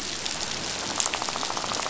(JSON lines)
{"label": "biophony, rattle", "recorder": "SoundTrap 500"}